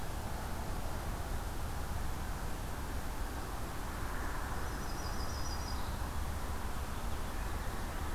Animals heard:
Yellow-rumped Warbler (Setophaga coronata)

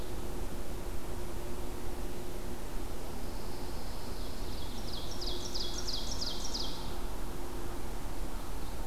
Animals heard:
Ovenbird (Seiurus aurocapilla), Pine Warbler (Setophaga pinus)

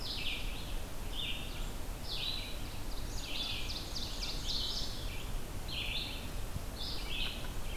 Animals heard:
Ovenbird (Seiurus aurocapilla), Red-eyed Vireo (Vireo olivaceus)

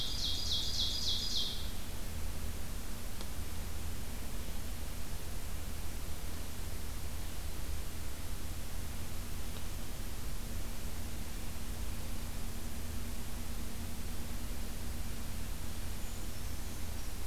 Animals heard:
Ovenbird (Seiurus aurocapilla), Brown Creeper (Certhia americana)

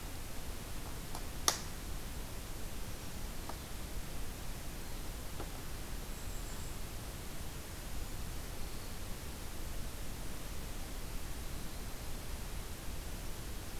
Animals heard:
Black-throated Green Warbler (Setophaga virens), Golden-crowned Kinglet (Regulus satrapa)

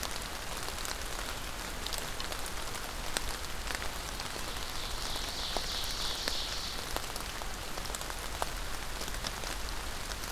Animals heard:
Ovenbird (Seiurus aurocapilla)

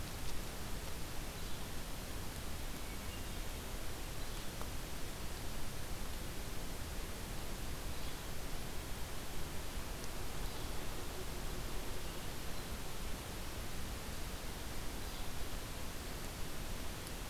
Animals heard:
Hermit Thrush (Catharus guttatus), Yellow-bellied Flycatcher (Empidonax flaviventris)

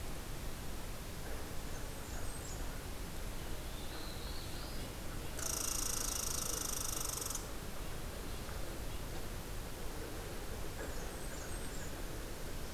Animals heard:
Black-throated Blue Warbler (Setophaga caerulescens), Blackburnian Warbler (Setophaga fusca), Red Squirrel (Tamiasciurus hudsonicus)

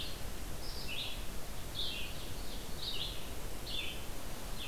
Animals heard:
Ovenbird (Seiurus aurocapilla), Red-eyed Vireo (Vireo olivaceus)

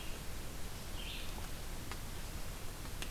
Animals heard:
Red-eyed Vireo (Vireo olivaceus)

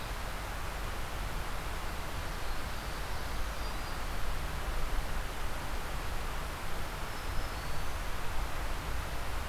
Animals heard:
Black-throated Green Warbler (Setophaga virens), Black-throated Blue Warbler (Setophaga caerulescens)

